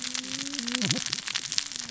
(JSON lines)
{"label": "biophony, cascading saw", "recorder": "SoundTrap 600 or HydroMoth"}